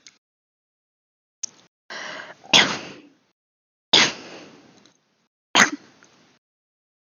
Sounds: Cough